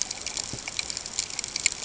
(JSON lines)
{"label": "ambient", "recorder": "HydroMoth"}